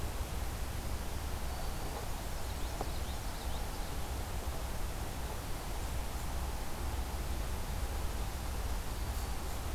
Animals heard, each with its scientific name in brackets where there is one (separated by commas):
Common Yellowthroat (Geothlypis trichas), Black-throated Green Warbler (Setophaga virens)